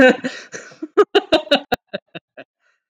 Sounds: Laughter